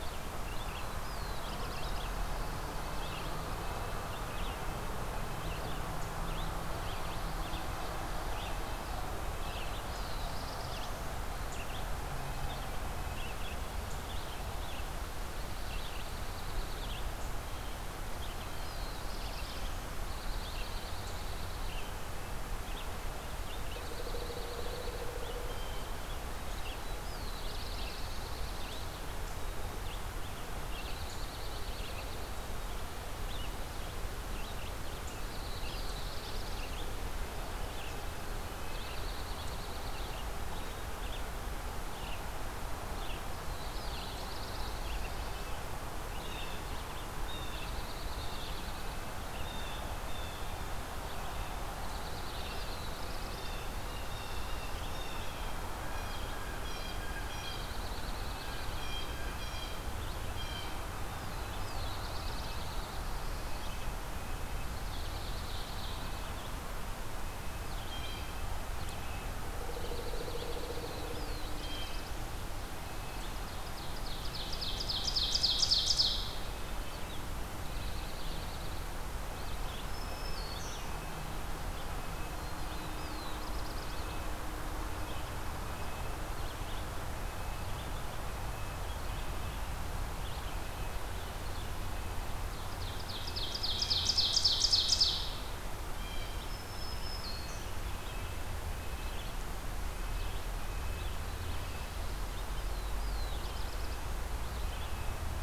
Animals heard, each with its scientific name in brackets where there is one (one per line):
Ovenbird (Seiurus aurocapilla)
Red-eyed Vireo (Vireo olivaceus)
Blue Jay (Cyanocitta cristata)
Dark-eyed Junco (Junco hyemalis)
Black-throated Blue Warbler (Setophaga caerulescens)
Black-throated Green Warbler (Setophaga virens)
Red-breasted Nuthatch (Sitta canadensis)